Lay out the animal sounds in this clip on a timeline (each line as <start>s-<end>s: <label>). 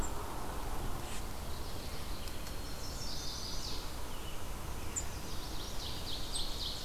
1.4s-2.4s: Mourning Warbler (Geothlypis philadelphia)
2.2s-3.5s: Black-capped Chickadee (Poecile atricapillus)
2.5s-4.0s: Chestnut-sided Warbler (Setophaga pensylvanica)
3.4s-5.0s: American Robin (Turdus migratorius)
4.6s-5.9s: Chestnut-sided Warbler (Setophaga pensylvanica)
5.5s-6.8s: Ovenbird (Seiurus aurocapilla)